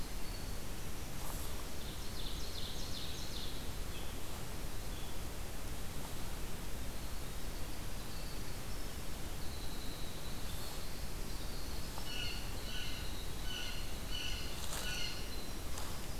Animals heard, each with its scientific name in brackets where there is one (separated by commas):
Winter Wren (Troglodytes hiemalis), Ovenbird (Seiurus aurocapilla), Blue Jay (Cyanocitta cristata)